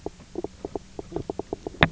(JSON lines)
{"label": "biophony, knock croak", "recorder": "SoundTrap 300"}